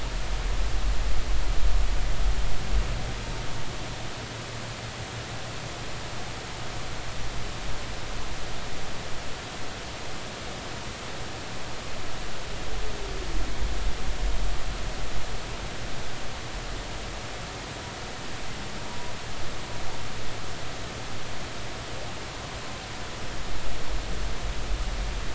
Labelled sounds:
18.9	19.1	humpback whale, 0.93 to 1.1 kHz

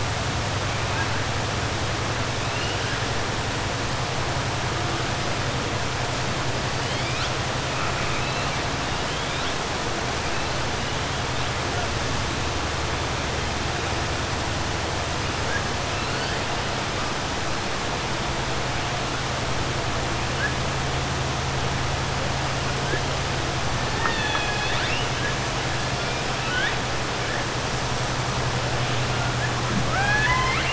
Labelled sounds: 23.9	25.1	killer whale, 0.86 to 5.1 kHz

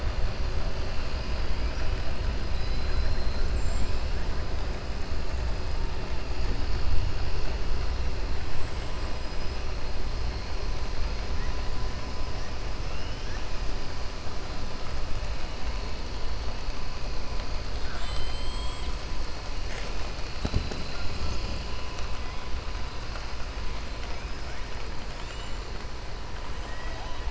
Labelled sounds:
26.6	27.3	killer whale, 0.64 to 4.0 kHz

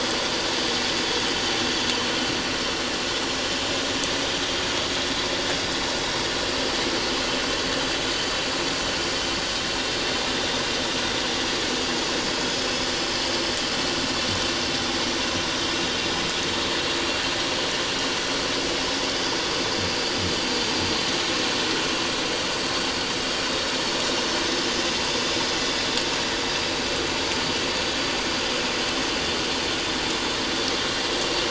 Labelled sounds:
12.6	12.9	vessel noise, 5.0 to 5.2 kHz

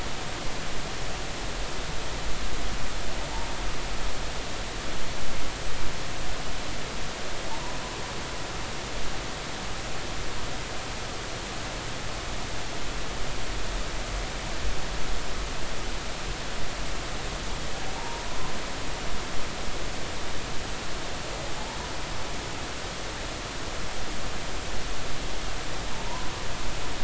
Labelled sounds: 17.9	18.5	humpback whale, 0.80 to 1.1 kHz
26.1	26.3	humpback whale, 0.90 to 1.1 kHz

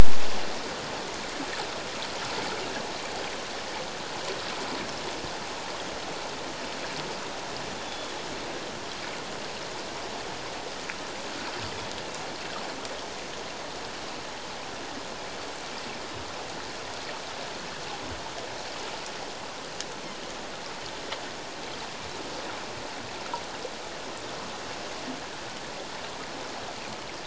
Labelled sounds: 7.9	8.1	Pacific white-sided dolphin, 3.3 to 3.5 kHz

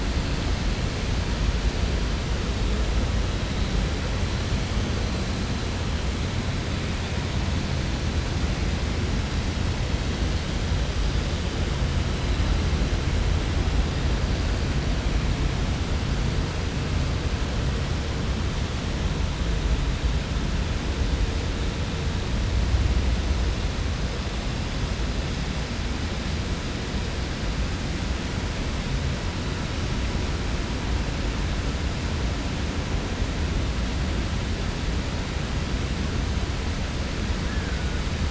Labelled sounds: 37.4	37.8	killer whale, 1.3 to 1.8 kHz

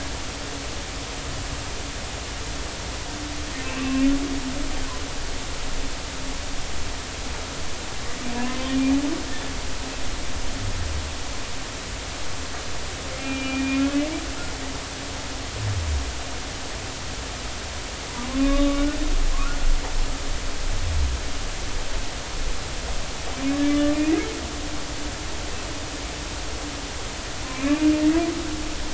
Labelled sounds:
3.8	4.1	humpback whale, 2.6 to 2.8 kHz
8.3	8.6	humpback whale, 0.93 to 1.1 kHz
13.2	13.9	humpback whale, 2.3 to 3.0 kHz
18.1	19.6	humpback whale, 0.93 to 3.7 kHz
23.7	24.3	humpback whale, 1.1 to 2.3 kHz
27.5	27.8	humpback whale, 2.1 to 2.8 kHz

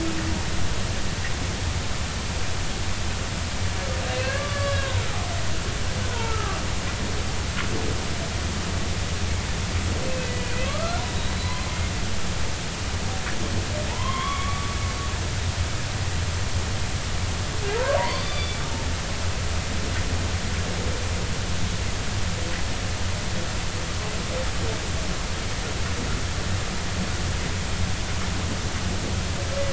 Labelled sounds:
4.3	5.0	humpback whale, 0.93 to 3.5 kHz
6.0	6.6	humpback whale, 0.86 to 1.5 kHz
10.1	11.6	humpback whale, 1.1 to 4.1 kHz
13.9	14.7	humpback whale, 0.83 to 3.4 kHz
17.8	18.6	humpback whale, 0.90 to 4.8 kHz

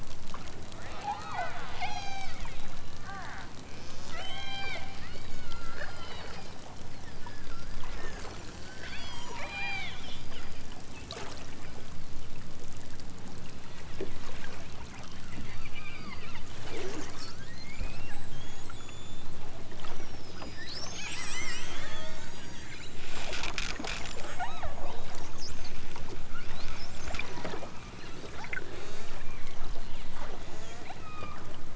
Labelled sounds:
0.8	2.4	killer whale, southern Alaska resident, 0.37 to 8.0 kHz
3.0	3.5	killer whale, southern Alaska resident, 0.51 to 2.3 kHz
4.1	6.3	killer whale, southern Alaska resident, 0.37 to 8.0 kHz
7.9	10.0	killer whale, southern Alaska resident, 0.41 to 6.6 kHz
13.5	14.1	killer whale, southern Alaska resident, 1.4 to 4.3 kHz
15.7	16.3	killer whale, southern Alaska resident, 0.78 to 5.1 kHz
17.3	18.3	killer whale, southern Alaska resident, 1.1 to 8.0 kHz
24.4	24.8	killer whale, southern Alaska resident, 0.41 to 4.5 kHz
27.4	27.8	killer whale, southern Alaska resident, 1.5 to 4.1 kHz
28.7	29.5	killer whale, southern Alaska resident, 0.60 to 8.0 kHz
30.4	31.4	killer whale, southern Alaska resident, 0.88 to 8.0 kHz

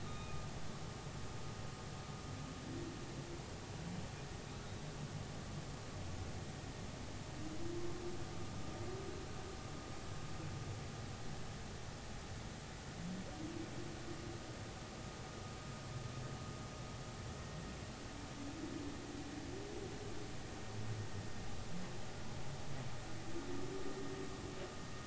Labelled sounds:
0.0	0.4	humpback whale, 1.2 to 3.8 kHz

